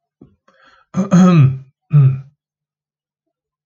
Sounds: Throat clearing